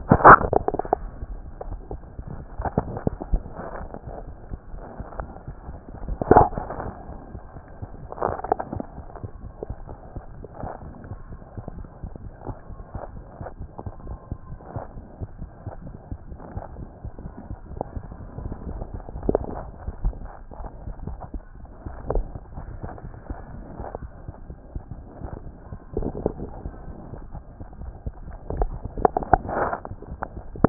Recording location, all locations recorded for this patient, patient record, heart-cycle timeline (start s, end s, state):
mitral valve (MV)
aortic valve (AV)+mitral valve (MV)
#Age: Child
#Sex: Female
#Height: 100.0 cm
#Weight: 17.0 kg
#Pregnancy status: False
#Murmur: Unknown
#Murmur locations: nan
#Most audible location: nan
#Systolic murmur timing: nan
#Systolic murmur shape: nan
#Systolic murmur grading: nan
#Systolic murmur pitch: nan
#Systolic murmur quality: nan
#Diastolic murmur timing: nan
#Diastolic murmur shape: nan
#Diastolic murmur grading: nan
#Diastolic murmur pitch: nan
#Diastolic murmur quality: nan
#Outcome: Abnormal
#Campaign: 2014 screening campaign
0.00	9.24	unannotated
9.24	9.30	S1
9.30	9.44	systole
9.44	9.52	S2
9.52	9.70	diastole
9.70	9.78	S1
9.78	9.88	systole
9.88	9.97	S2
9.97	10.16	diastole
10.16	10.24	S1
10.24	10.36	systole
10.36	10.46	S2
10.46	10.62	diastole
10.62	10.70	S1
10.70	10.84	systole
10.84	10.94	S2
10.94	11.10	diastole
11.10	11.20	S1
11.20	11.30	systole
11.30	11.40	S2
11.40	11.57	diastole
11.57	11.66	S1
11.66	11.76	systole
11.76	11.86	S2
11.86	12.04	diastole
12.04	12.12	S1
12.12	12.22	systole
12.22	12.32	S2
12.32	12.46	diastole
12.46	12.56	S1
12.56	12.70	systole
12.70	12.80	S2
12.80	12.94	diastole
12.94	13.02	S1
13.02	13.14	systole
13.14	13.24	S2
13.24	13.40	diastole
13.40	30.69	unannotated